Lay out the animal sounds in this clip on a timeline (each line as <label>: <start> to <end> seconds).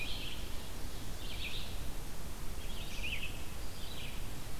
Red-eyed Vireo (Vireo olivaceus): 0.0 to 4.6 seconds